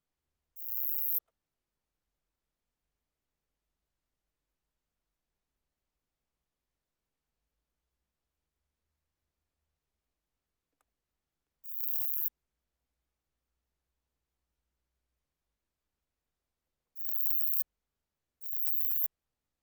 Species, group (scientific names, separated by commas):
Uromenus elegans, Orthoptera